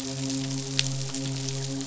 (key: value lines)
label: biophony, midshipman
recorder: SoundTrap 500